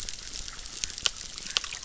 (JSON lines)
{"label": "biophony, chorus", "recorder": "SoundTrap 600"}